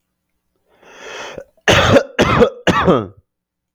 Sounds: Cough